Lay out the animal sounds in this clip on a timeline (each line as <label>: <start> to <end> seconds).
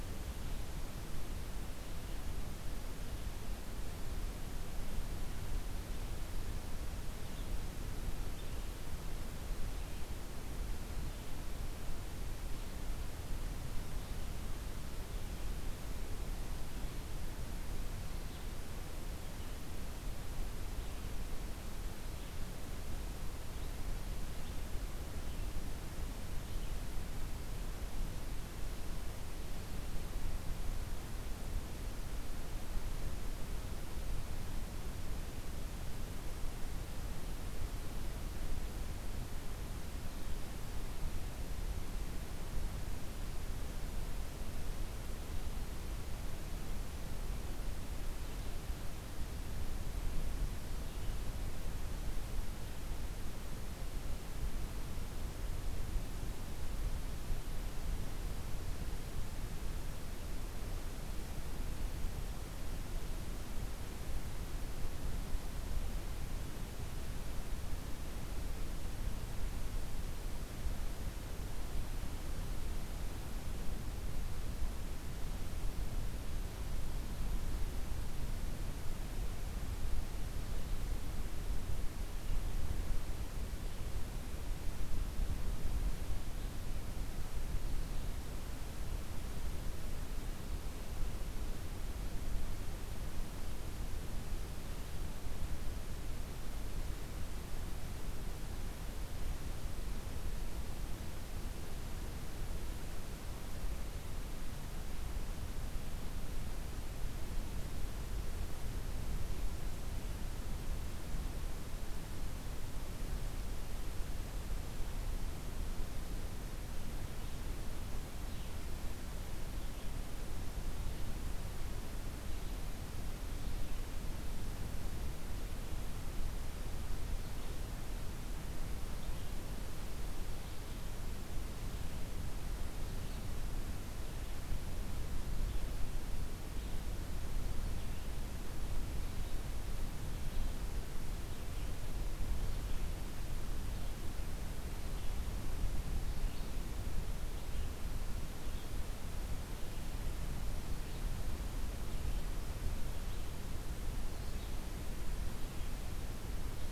Red-eyed Vireo (Vireo olivaceus): 0.3 to 24.0 seconds
Red-eyed Vireo (Vireo olivaceus): 47.7 to 52.2 seconds
Red-eyed Vireo (Vireo olivaceus): 118.1 to 156.7 seconds